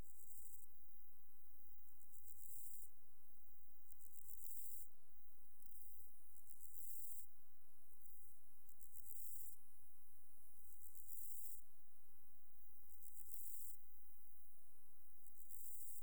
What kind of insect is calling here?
orthopteran